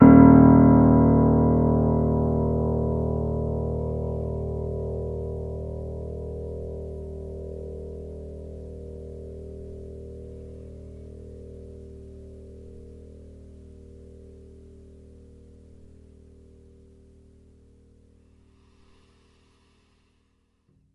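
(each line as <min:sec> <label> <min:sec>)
0:00.0 An upright piano plays a continuous note that gradually fades. 0:20.9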